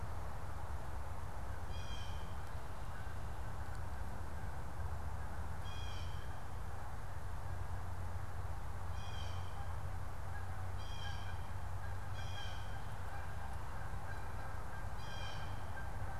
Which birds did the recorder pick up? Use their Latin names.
Cyanocitta cristata, Branta canadensis